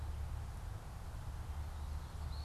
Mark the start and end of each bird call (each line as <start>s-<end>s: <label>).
0.0s-2.4s: Eastern Wood-Pewee (Contopus virens)